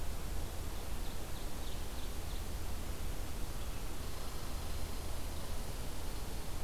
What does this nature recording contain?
Ovenbird, Red Squirrel